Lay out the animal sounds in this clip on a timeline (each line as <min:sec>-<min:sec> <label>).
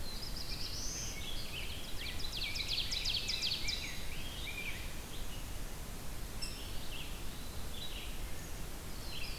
0:00.0-0:01.3 Black-throated Blue Warbler (Setophaga caerulescens)
0:00.0-0:09.4 Red-eyed Vireo (Vireo olivaceus)
0:01.5-0:04.0 Ovenbird (Seiurus aurocapilla)
0:01.8-0:05.2 Rose-breasted Grosbeak (Pheucticus ludovicianus)
0:06.3-0:06.8 Rose-breasted Grosbeak (Pheucticus ludovicianus)
0:06.6-0:07.7 Eastern Wood-Pewee (Contopus virens)
0:08.6-0:09.4 Black-throated Blue Warbler (Setophaga caerulescens)